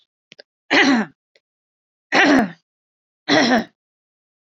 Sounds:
Throat clearing